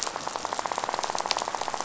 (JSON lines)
{"label": "biophony, rattle", "recorder": "SoundTrap 500"}